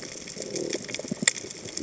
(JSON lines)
{"label": "biophony", "recorder": "HydroMoth"}